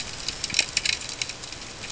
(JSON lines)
{"label": "ambient", "recorder": "HydroMoth"}